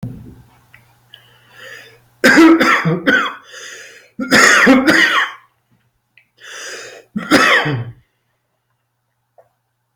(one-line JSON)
{"expert_labels": [{"quality": "ok", "cough_type": "dry", "dyspnea": false, "wheezing": true, "stridor": false, "choking": false, "congestion": false, "nothing": false, "diagnosis": "obstructive lung disease", "severity": "mild"}], "age": 54, "gender": "male", "respiratory_condition": false, "fever_muscle_pain": false, "status": "COVID-19"}